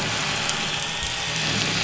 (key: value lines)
label: anthrophony, boat engine
recorder: SoundTrap 500